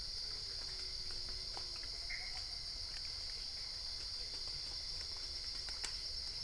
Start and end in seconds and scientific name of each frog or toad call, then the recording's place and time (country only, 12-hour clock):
2.1	2.4	Pithecopus azureus
Brazil, 12:00am